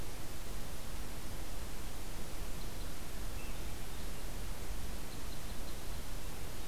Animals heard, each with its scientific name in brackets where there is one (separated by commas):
Red Crossbill (Loxia curvirostra), Hermit Thrush (Catharus guttatus)